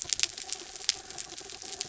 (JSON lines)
{"label": "anthrophony, mechanical", "recorder": "SoundTrap 300"}